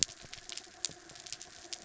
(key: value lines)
label: anthrophony, mechanical
recorder: SoundTrap 300